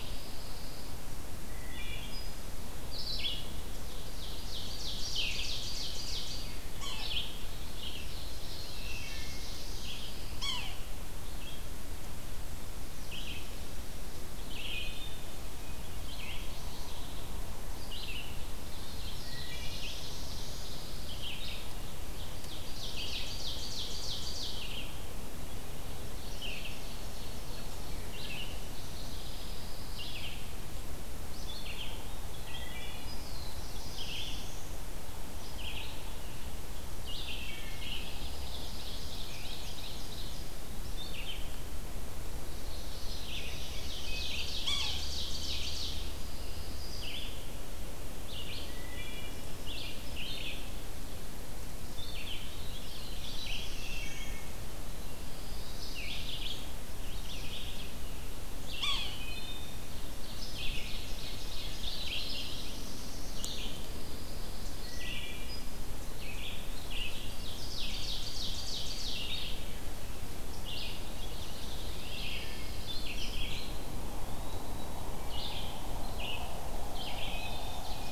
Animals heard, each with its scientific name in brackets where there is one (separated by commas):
Red-eyed Vireo (Vireo olivaceus), Yellow-bellied Sapsucker (Sphyrapicus varius), Wood Thrush (Hylocichla mustelina), Pine Warbler (Setophaga pinus), Eastern Wood-Pewee (Contopus virens), Ovenbird (Seiurus aurocapilla), Black-throated Blue Warbler (Setophaga caerulescens)